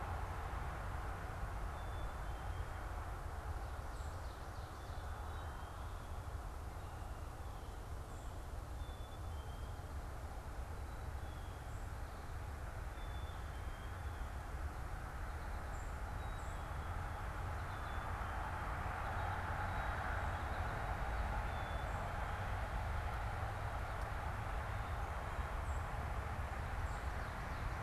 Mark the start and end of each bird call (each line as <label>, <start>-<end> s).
Black-capped Chickadee (Poecile atricapillus), 0.0-24.7 s
Blue Jay (Cyanocitta cristata), 11.0-11.5 s
Northern Cardinal (Cardinalis cardinalis), 15.6-15.8 s
Song Sparrow (Melospiza melodia), 16.2-16.6 s
American Goldfinch (Spinus tristis), 18.1-20.8 s
Song Sparrow (Melospiza melodia), 25.6-25.9 s